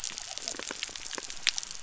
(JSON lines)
{"label": "biophony", "recorder": "SoundTrap 300"}